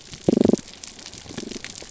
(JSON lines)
{"label": "biophony, pulse", "recorder": "SoundTrap 300"}